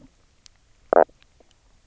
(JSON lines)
{"label": "biophony, knock croak", "recorder": "SoundTrap 300"}